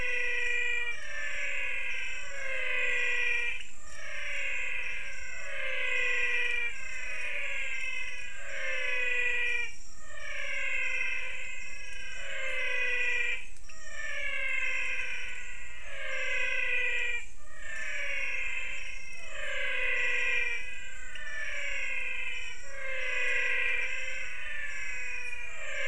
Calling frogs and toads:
pointedbelly frog (Leptodactylus podicipinus), menwig frog (Physalaemus albonotatus)
Cerrado, 5:45pm

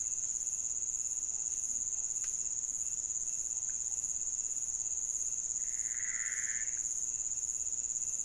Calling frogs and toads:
pointedbelly frog (Leptodactylus podicipinus), Pithecopus azureus
Cerrado, 4:00am

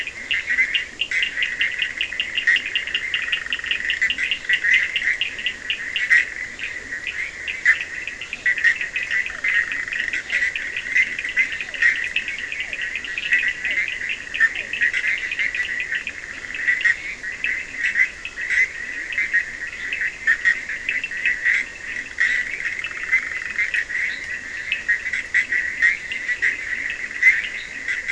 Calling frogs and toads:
Leptodactylus latrans, Cochran's lime tree frog (Sphaenorhynchus surdus), Physalaemus cuvieri, Bischoff's tree frog (Boana bischoffi), fine-lined tree frog (Boana leptolineata)
Atlantic Forest, 4:00am

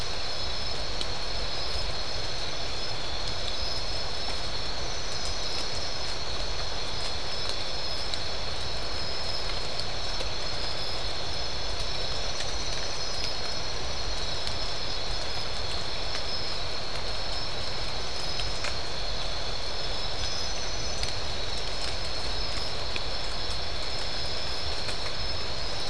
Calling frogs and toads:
none
Atlantic Forest, 12:30am

